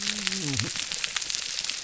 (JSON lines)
{"label": "biophony, whup", "recorder": "SoundTrap 300"}